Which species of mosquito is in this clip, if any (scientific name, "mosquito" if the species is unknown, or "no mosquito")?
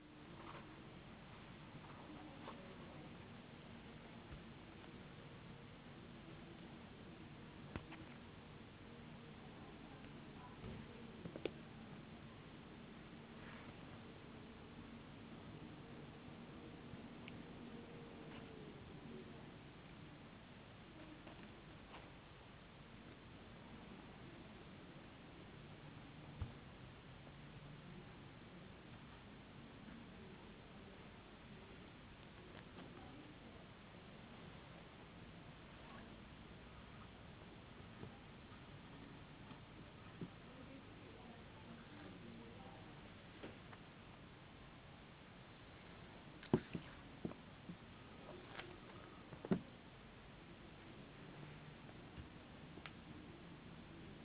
no mosquito